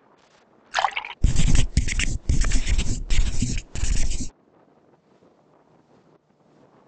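At the start, the sound of liquid filling is heard. Then, about 1 second in, writing can be heard.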